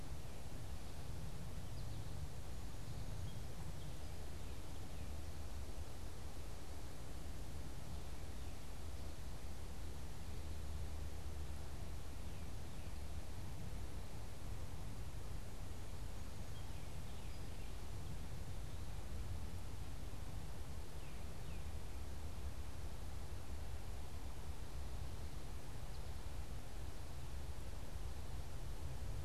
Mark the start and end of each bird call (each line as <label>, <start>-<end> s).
American Goldfinch (Spinus tristis), 1.4-3.4 s
Tufted Titmouse (Baeolophus bicolor), 4.1-5.3 s
Tufted Titmouse (Baeolophus bicolor), 16.3-18.0 s
Tufted Titmouse (Baeolophus bicolor), 20.7-22.0 s